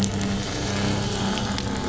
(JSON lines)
{"label": "anthrophony, boat engine", "recorder": "SoundTrap 500"}